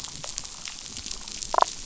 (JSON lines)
{"label": "biophony, damselfish", "recorder": "SoundTrap 500"}